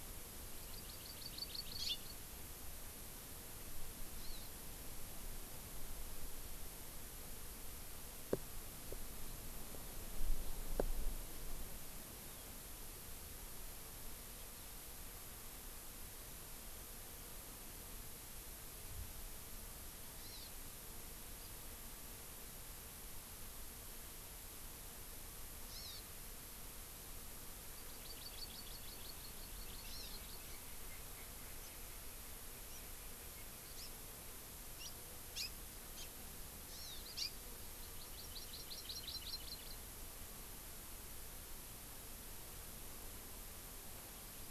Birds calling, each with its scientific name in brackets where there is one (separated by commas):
House Finch (Haemorhous mexicanus), Hawaii Amakihi (Chlorodrepanis virens)